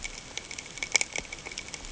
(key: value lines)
label: ambient
recorder: HydroMoth